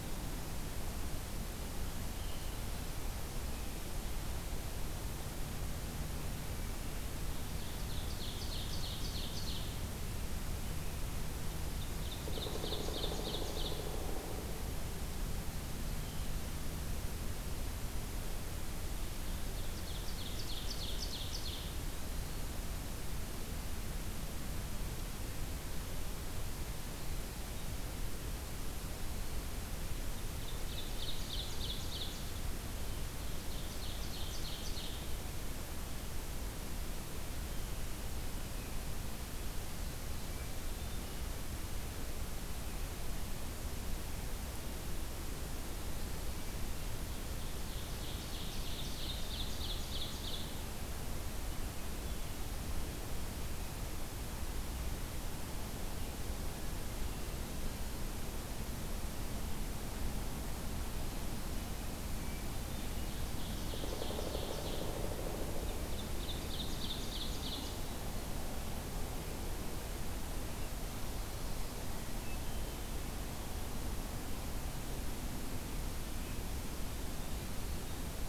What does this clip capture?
Ovenbird, Pileated Woodpecker, Eastern Wood-Pewee, Hermit Thrush